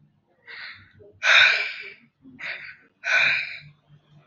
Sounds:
Sigh